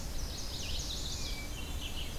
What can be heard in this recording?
Chestnut-sided Warbler, Red-eyed Vireo, Hermit Thrush, Black-and-white Warbler